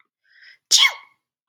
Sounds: Sneeze